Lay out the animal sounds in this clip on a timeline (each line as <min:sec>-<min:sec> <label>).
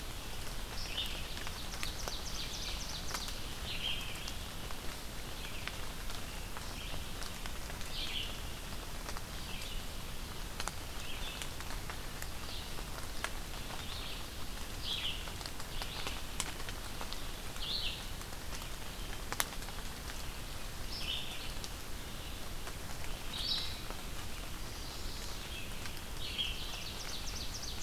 0:00.0-0:27.8 Red-eyed Vireo (Vireo olivaceus)
0:01.2-0:03.5 Ovenbird (Seiurus aurocapilla)
0:24.4-0:25.5 Chestnut-sided Warbler (Setophaga pensylvanica)
0:26.2-0:27.8 Ovenbird (Seiurus aurocapilla)